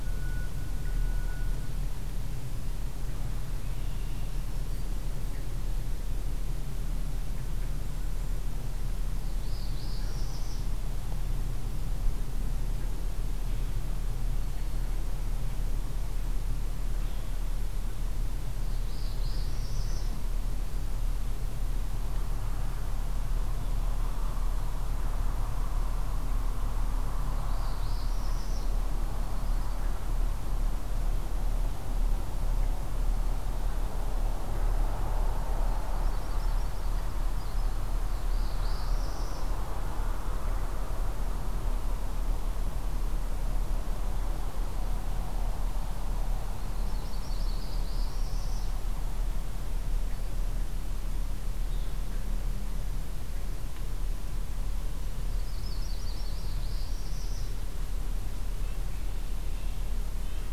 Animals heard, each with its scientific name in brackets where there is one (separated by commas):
Northern Parula (Setophaga americana), Yellow-rumped Warbler (Setophaga coronata), Black-throated Green Warbler (Setophaga virens), Red-winged Blackbird (Agelaius phoeniceus), Red-breasted Nuthatch (Sitta canadensis)